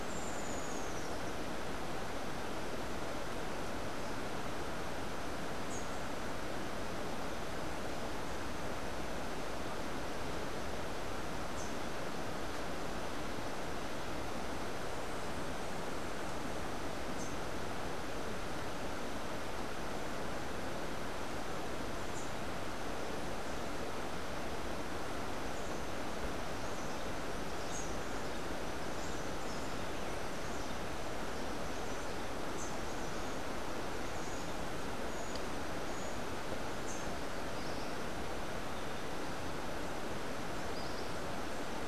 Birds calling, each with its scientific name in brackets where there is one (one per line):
Rufous-tailed Hummingbird (Amazilia tzacatl)
Rufous-capped Warbler (Basileuterus rufifrons)